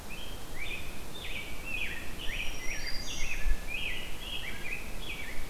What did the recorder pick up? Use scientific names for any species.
Pheucticus ludovicianus, Setophaga virens